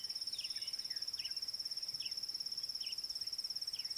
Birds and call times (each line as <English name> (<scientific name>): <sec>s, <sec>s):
Parrot-billed Sparrow (Passer gongonensis): 1.2s